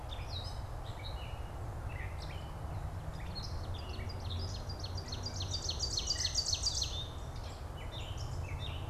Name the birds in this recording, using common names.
Gray Catbird, Ovenbird